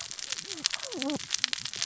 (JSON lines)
{"label": "biophony, cascading saw", "recorder": "SoundTrap 600 or HydroMoth"}